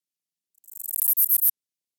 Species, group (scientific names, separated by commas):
Callicrania ramburii, Orthoptera